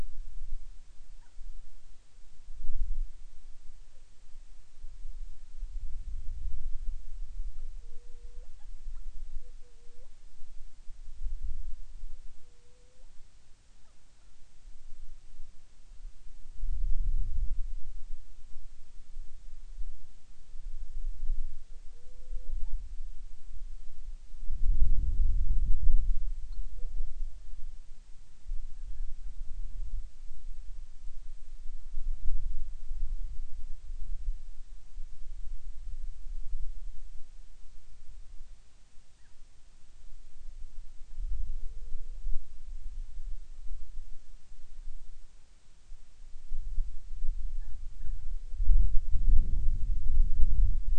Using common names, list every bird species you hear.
Hawaiian Petrel